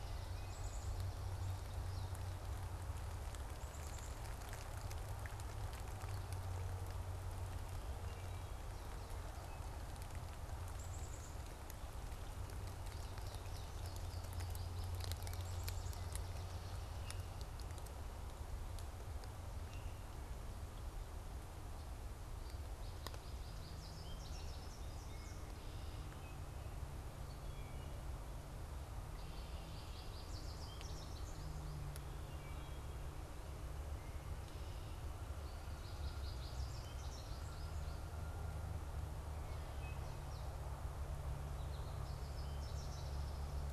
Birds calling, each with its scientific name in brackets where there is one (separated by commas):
American Goldfinch (Spinus tristis), Swamp Sparrow (Melospiza georgiana), Black-capped Chickadee (Poecile atricapillus), Wood Thrush (Hylocichla mustelina)